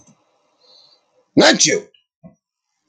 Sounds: Sneeze